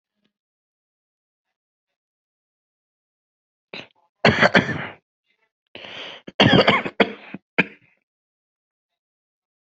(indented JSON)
{
  "expert_labels": [
    {
      "quality": "good",
      "cough_type": "unknown",
      "dyspnea": false,
      "wheezing": false,
      "stridor": false,
      "choking": false,
      "congestion": false,
      "nothing": true,
      "diagnosis": "obstructive lung disease",
      "severity": "severe"
    }
  ],
  "age": 18,
  "gender": "male",
  "respiratory_condition": false,
  "fever_muscle_pain": false,
  "status": "symptomatic"
}